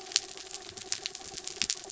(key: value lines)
label: anthrophony, mechanical
recorder: SoundTrap 300